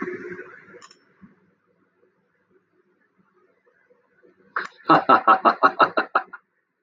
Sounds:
Laughter